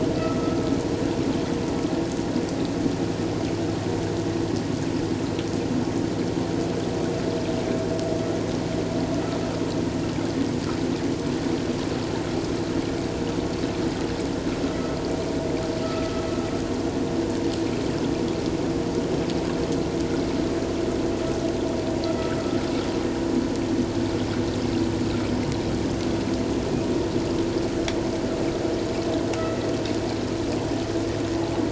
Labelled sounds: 0.2	0.6	vessel noise, 1.2 to 1.4 kHz
15.8	16.1	vessel noise, 1.2 to 1.4 kHz

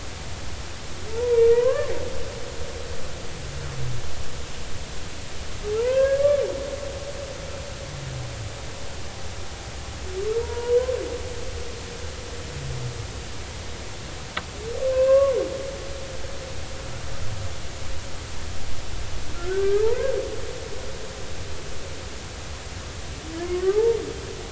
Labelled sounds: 1.1	1.9	humpback whale, 0.86 to 1.8 kHz
5.7	6.2	humpback whale, 0.83 to 2.7 kHz
10.4	10.8	humpback whale, 0.90 to 1.5 kHz
14.8	15.3	humpback whale, 0.93 to 2.8 kHz
19.3	20.1	humpback whale, 0.83 to 1.7 kHz
23.4	24.0	humpback whale, 0.80 to 1.3 kHz

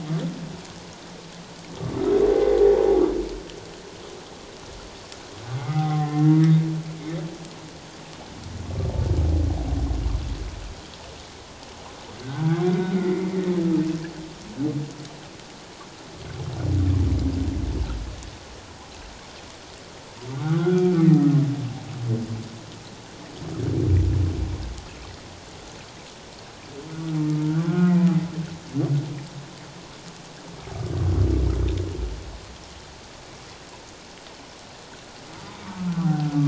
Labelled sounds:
5.6	6.6	humpback whale, 0.78 to 2.1 kHz
12.2	12.5	humpback whale, 1.4 to 1.6 kHz
12.9	13.4	humpback whale, 1.9 to 2.2 kHz
20.4	21.1	humpback whale, 1.1 to 3.4 kHz
27.4	27.9	humpback whale, 1.3 to 1.6 kHz
35.9	36.2	humpback whale, 1.2 to 1.6 kHz

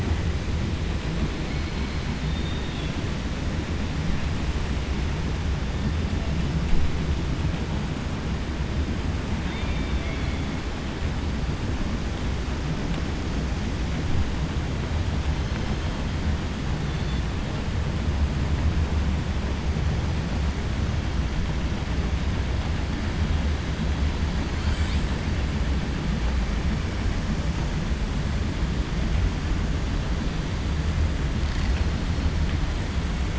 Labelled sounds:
2.2	2.9	killer whale, 2.7 to 4.6 kHz
9.4	10.5	killer whale, 1.6 to 4.4 kHz

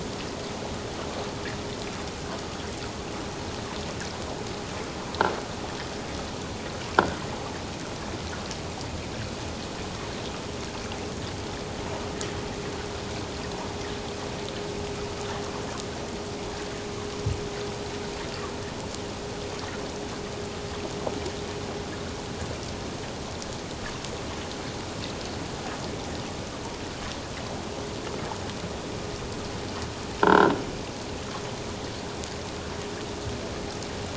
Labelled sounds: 30.2	30.5	croaking sound likely from a nearby submerged object, 1.3 to 1.7 kHz

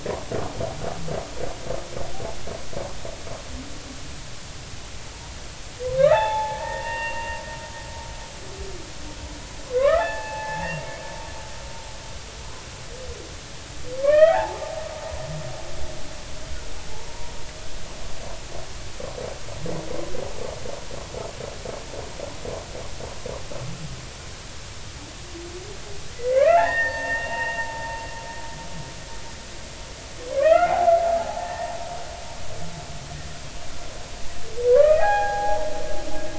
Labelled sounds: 6.0	7.4	humpback whale, 0.80 to 3.6 kHz
9.7	11.0	humpback whale, 0.80 to 2.8 kHz
14.0	14.6	humpback whale, 0.80 to 3.3 kHz
16.9	17.3	humpback whale, 0.80 to 1.2 kHz
26.1	28.0	humpback whale, 0.83 to 2.8 kHz
30.3	31.7	humpback whale, 0.80 to 2.8 kHz
34.7	35.7	humpback whale, 0.80 to 2.7 kHz

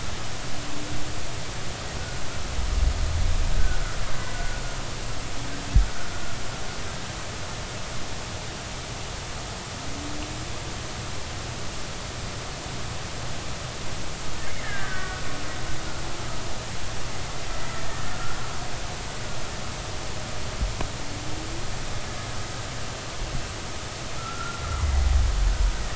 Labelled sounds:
4.3	4.6	killer whale, Bigg's (transient), 1.4 to 1.5 kHz
14.5	15.3	killer whale, Bigg's (transient), 1.4 to 2.3 kHz
17.6	17.8	killer whale, Bigg's (transient), 1.8 to 2.1 kHz
24.2	24.6	killer whale, Bigg's (transient), 1.2 to 1.4 kHz

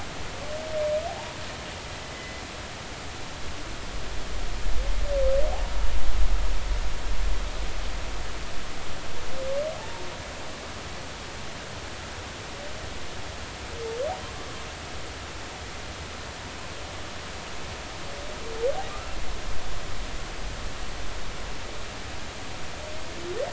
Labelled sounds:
1.1	2.4	humpback whale, 0.80 to 2.1 kHz
9.8	10.0	humpback whale, 0.83 to 1.0 kHz
18.9	19.2	humpback whale, 1.1 to 1.4 kHz

